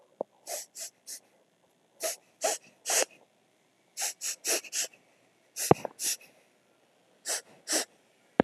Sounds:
Sniff